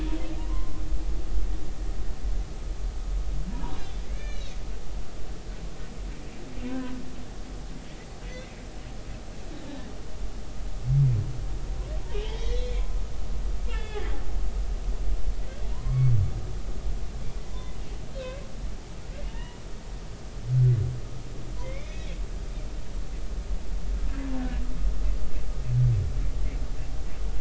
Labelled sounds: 0.4	0.7	humpback whale, 0.90 to 1.1 kHz
4.1	4.5	humpback whale, 1.6 to 6.6 kHz
6.6	6.9	humpback whale, 0.93 to 1.1 kHz
8.3	8.5	humpback whale, 1.9 to 2.2 kHz
12.1	12.8	humpback whale, 1.9 to 3.5 kHz
13.7	14.2	humpback whale, 1.6 to 3.5 kHz
15.7	16.1	humpback whale, 0.90 to 2.3 kHz
17.5	18.4	humpback whale, 0.96 to 1.7 kHz
19.3	19.6	humpback whale, 0.86 to 2.0 kHz
21.6	22.1	humpback whale, 2.0 to 2.6 kHz

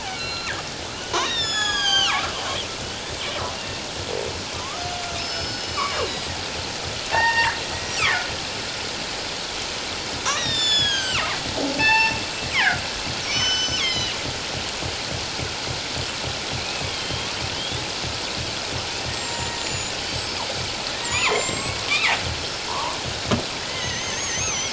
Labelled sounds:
0.1	0.5	killer whale, northern resident, G clan, 2.2 to 4.2 kHz
1.2	2.3	killer whale, northern resident, G clan, 0.78 to 7.5 kHz
3.6	3.8	killer whale, northern resident, G clan, 2.7 to 2.8 kHz
4.6	6.4	killer whale, northern resident, G clan, 0.97 to 5.3 kHz
7.1	7.6	killer whale, northern resident, G clan, 0.78 to 4.7 kHz
8.0	8.3	killer whale, northern resident, G clan, 1.7 to 2.7 kHz
10.2	11.4	killer whale, northern resident, G clan, 0.94 to 8.0 kHz
11.8	12.2	killer whale, northern resident, G clan, 0.81 to 4.5 kHz
12.5	14.1	killer whale, northern resident, G clan, 1.3 to 6.1 kHz
16.9	17.8	killer whale, northern resident, G clan, 2.9 to 3.8 kHz
19.1	20.5	killer whale, northern resident, G clan, 1.8 to 7.8 kHz
20.9	22.2	killer whale, northern resident, G clan, 0.88 to 8.0 kHz
22.7	24.7	killer whale, northern resident, G clan, 0.81 to 6.7 kHz

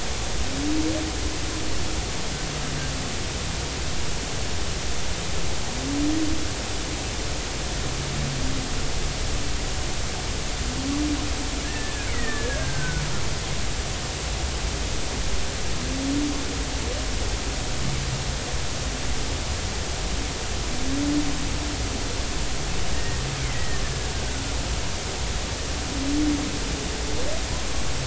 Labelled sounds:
11.6	13.0	killer whale, Bigg's (transient), 1.4 to 2.3 kHz
22.9	23.8	killer whale, Bigg's (transient), 1.8 to 2.3 kHz

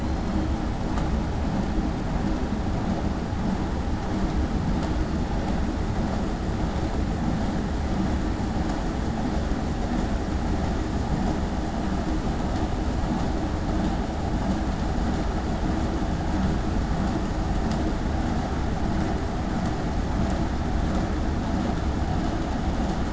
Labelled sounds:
0.0	0.3	killer whale, southern resident, 4.0 to 4.3 kHz

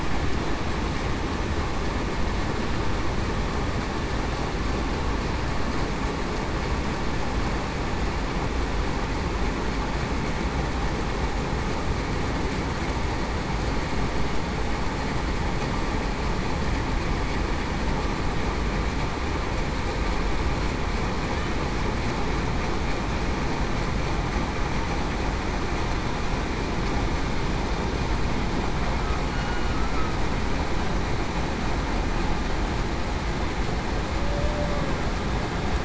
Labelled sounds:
29.3	30.1	humpback whale, 1.2 to 2.9 kHz
34.2	34.8	humpback whale, 0.54 to 0.63 kHz

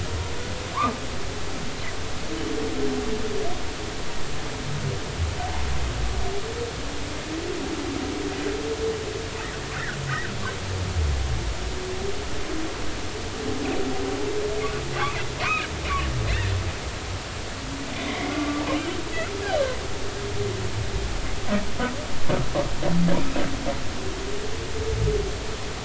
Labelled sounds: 15.4	15.7	humpback whale, 2.1 to 2.7 kHz
17.9	19.0	humpback whale, 1.1 to 3.2 kHz

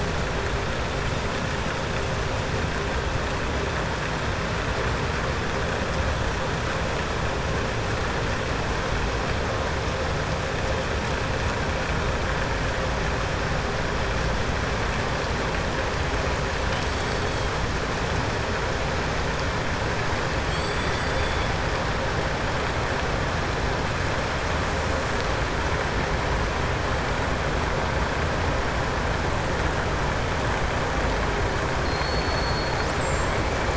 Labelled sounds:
20.4	21.5	killer whale, southern resident, 2.9 to 5.6 kHz
31.8	33.7	killer whale, southern resident, 4.2 to 8.0 kHz

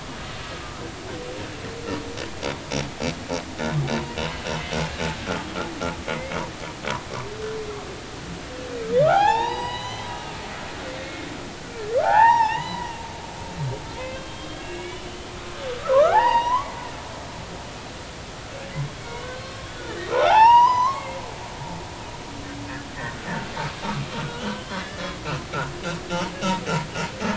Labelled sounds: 0.1	0.4	humpback whale, 1.2 to 1.3 kHz
6.1	6.4	humpback whale, 2.0 to 2.3 kHz
9.0	11.3	humpback whale, 0.80 to 6.1 kHz
12.0	13.0	humpback whale, 0.80 to 5.7 kHz
14.0	15.3	humpback whale, 0.96 to 3.6 kHz
15.8	16.8	humpback whale, 0.80 to 4.9 kHz
19.0	21.2	humpback whale, 0.80 to 6.0 kHz
24.2	25.0	humpback whale, 1.3 to 3.5 kHz

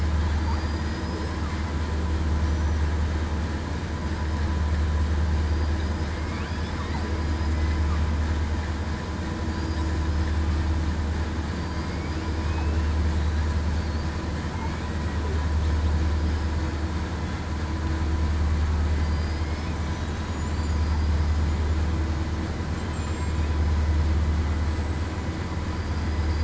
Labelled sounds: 0.6	1.3	killer whale, southern resident, 4.8 to 8.0 kHz
11.5	12.0	killer whale, southern resident, 4.6 to 4.8 kHz
12.4	12.9	killer whale, southern resident, 2.4 to 2.8 kHz
19.0	19.4	killer whale, southern resident, 4.7 to 5.0 kHz
20.5	21.1	killer whale, southern resident, 4.7 to 4.9 kHz
22.9	23.4	killer whale, southern resident, 7.2 to 7.7 kHz

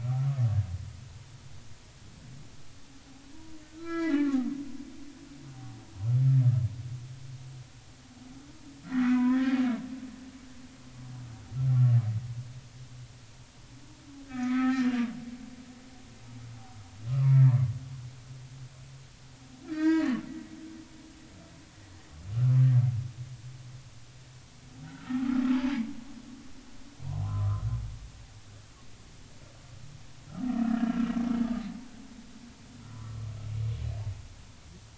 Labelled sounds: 3.8	4.5	humpback whale, 0.80 to 3.0 kHz
8.8	9.6	humpback whale, 0.93 to 2.6 kHz
14.2	14.9	humpback whale, 1.2 to 2.4 kHz
17.1	17.4	humpback whale, 0.90 to 1.4 kHz
19.7	20.2	humpback whale, 0.90 to 4.9 kHz
24.8	25.3	humpback whale, 1.2 to 1.6 kHz
27.1	27.6	humpback whale, 0.90 to 1.4 kHz
30.6	31.1	humpback whale, 1.1 to 1.8 kHz

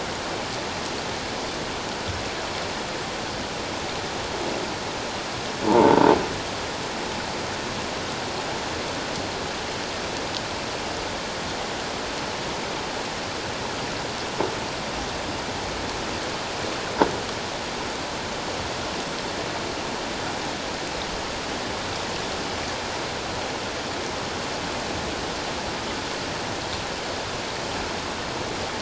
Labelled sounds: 5.6	6.0	croaking sound likely from a nearby submerged object, 0.81 to 1.1 kHz

